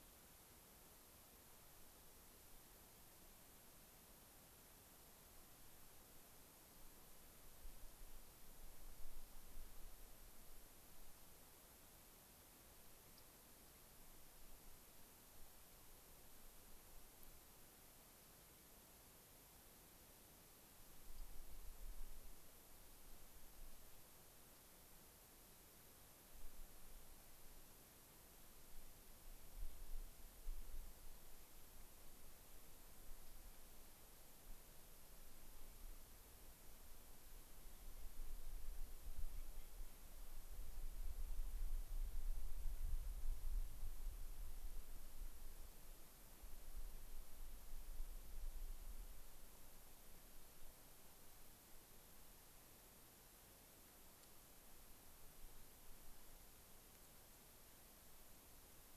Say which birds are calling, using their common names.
unidentified bird